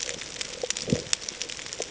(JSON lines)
{"label": "ambient", "recorder": "HydroMoth"}